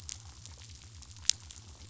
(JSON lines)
{"label": "biophony", "recorder": "SoundTrap 500"}